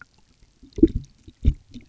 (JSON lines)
{"label": "geophony, waves", "recorder": "SoundTrap 300"}